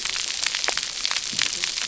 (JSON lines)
{"label": "biophony, cascading saw", "recorder": "SoundTrap 300"}